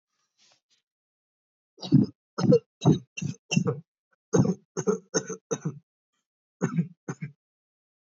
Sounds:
Cough